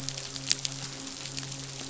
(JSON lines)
{"label": "biophony, midshipman", "recorder": "SoundTrap 500"}